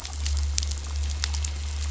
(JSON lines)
{"label": "anthrophony, boat engine", "recorder": "SoundTrap 500"}